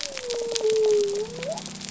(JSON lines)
{"label": "biophony", "recorder": "SoundTrap 300"}